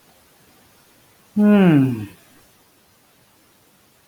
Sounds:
Sigh